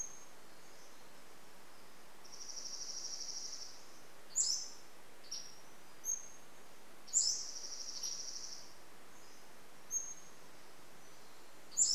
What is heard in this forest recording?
Pacific-slope Flycatcher song, Dark-eyed Junco song, Spotted Towhee song